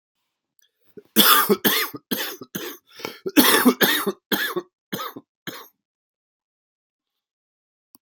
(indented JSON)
{
  "expert_labels": [
    {
      "quality": "good",
      "cough_type": "wet",
      "dyspnea": false,
      "wheezing": false,
      "stridor": false,
      "choking": false,
      "congestion": false,
      "nothing": true,
      "diagnosis": "lower respiratory tract infection",
      "severity": "mild"
    }
  ],
  "age": 40,
  "gender": "male",
  "respiratory_condition": false,
  "fever_muscle_pain": false,
  "status": "symptomatic"
}